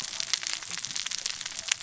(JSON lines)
{"label": "biophony, cascading saw", "recorder": "SoundTrap 600 or HydroMoth"}